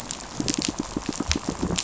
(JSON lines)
{"label": "biophony, pulse", "recorder": "SoundTrap 500"}